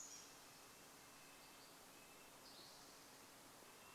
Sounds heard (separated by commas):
Spotted Towhee song, Red-breasted Nuthatch song